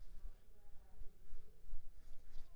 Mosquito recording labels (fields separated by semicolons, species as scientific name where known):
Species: Anopheles squamosus; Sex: female; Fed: unfed; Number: one; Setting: cup